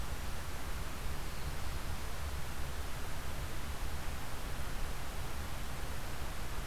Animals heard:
forest ambience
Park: Marsh-Billings-Rockefeller National Historical Park